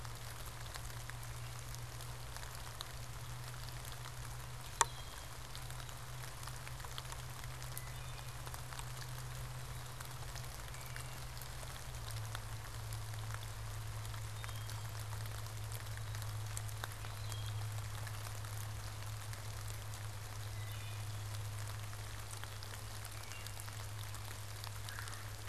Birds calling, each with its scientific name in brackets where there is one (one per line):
Red-bellied Woodpecker (Melanerpes carolinus)
Black-capped Chickadee (Poecile atricapillus)
Wood Thrush (Hylocichla mustelina)